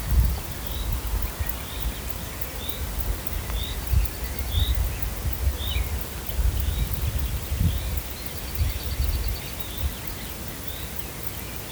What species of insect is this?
Barbitistes fischeri